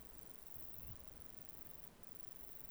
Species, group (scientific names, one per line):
Bicolorana bicolor
Orthoptera